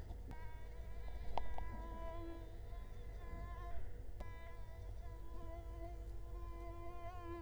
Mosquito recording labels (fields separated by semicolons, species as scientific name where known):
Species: Culex quinquefasciatus; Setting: cup